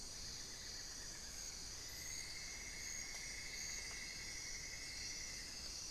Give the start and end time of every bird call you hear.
[0.00, 1.70] Amazonian Barred-Woodcreeper (Dendrocolaptes certhia)
[1.70, 5.90] Cinnamon-throated Woodcreeper (Dendrexetastes rufigula)

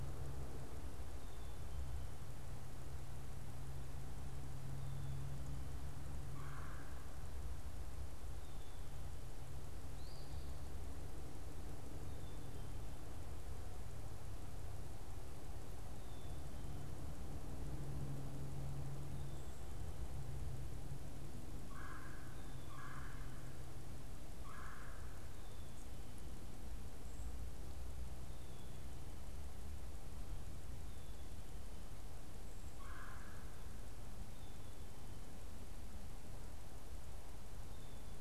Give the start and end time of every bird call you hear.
[0.79, 1.99] Black-capped Chickadee (Poecile atricapillus)
[6.29, 7.09] Red-bellied Woodpecker (Melanerpes carolinus)
[7.99, 16.99] Black-capped Chickadee (Poecile atricapillus)
[9.79, 10.39] Eastern Phoebe (Sayornis phoebe)
[21.49, 25.39] Red-bellied Woodpecker (Melanerpes carolinus)
[26.89, 27.39] unidentified bird
[28.19, 38.19] Black-capped Chickadee (Poecile atricapillus)
[32.49, 33.69] Red-bellied Woodpecker (Melanerpes carolinus)

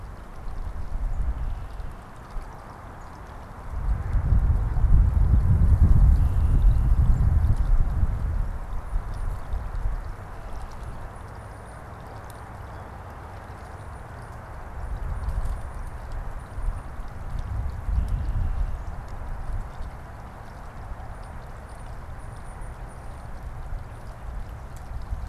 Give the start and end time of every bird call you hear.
[0.00, 25.28] Tufted Titmouse (Baeolophus bicolor)
[5.95, 7.05] Red-winged Blackbird (Agelaius phoeniceus)

